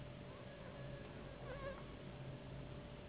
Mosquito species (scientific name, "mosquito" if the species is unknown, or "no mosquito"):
Anopheles gambiae s.s.